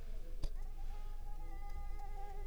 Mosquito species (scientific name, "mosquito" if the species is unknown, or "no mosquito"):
Mansonia africanus